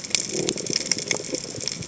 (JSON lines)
{"label": "biophony", "recorder": "HydroMoth"}